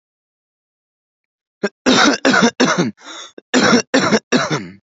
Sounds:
Cough